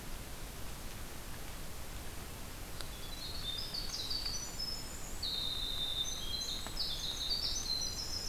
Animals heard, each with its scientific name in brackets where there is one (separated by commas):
Winter Wren (Troglodytes hiemalis)